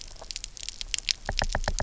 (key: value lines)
label: biophony, knock
recorder: SoundTrap 300